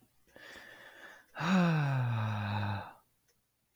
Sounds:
Sigh